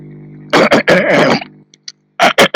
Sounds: Throat clearing